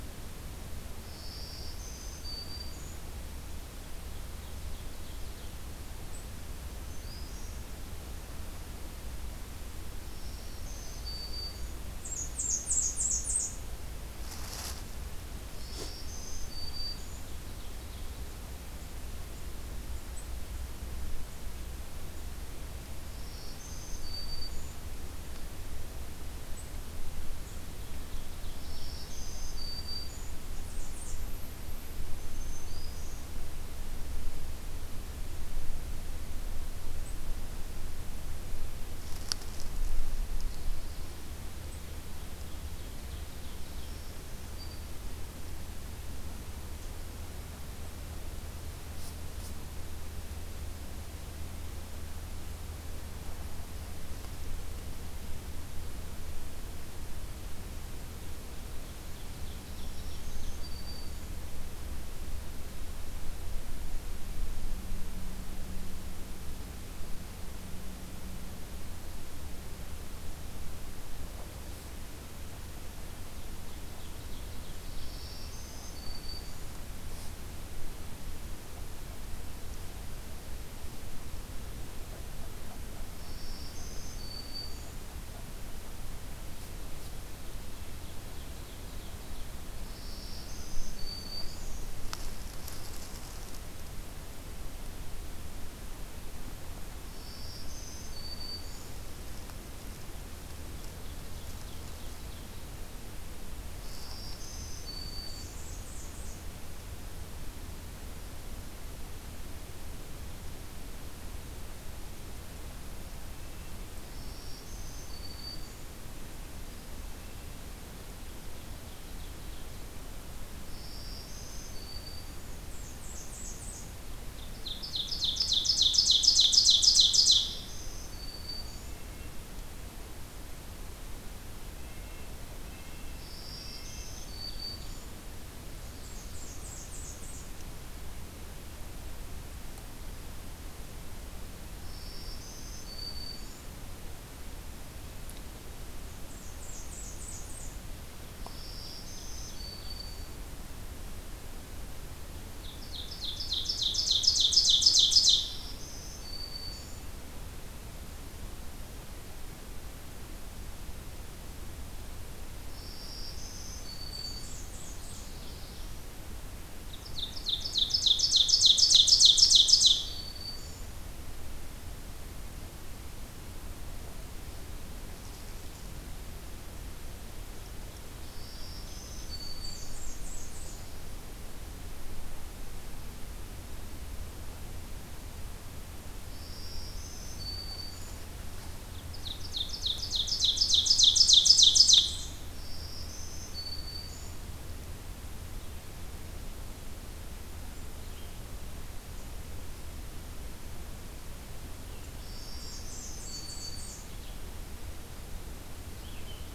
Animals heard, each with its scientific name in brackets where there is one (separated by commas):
Ovenbird (Seiurus aurocapilla), Red-eyed Vireo (Vireo olivaceus), Black-throated Green Warbler (Setophaga virens), Blackburnian Warbler (Setophaga fusca), Red-breasted Nuthatch (Sitta canadensis)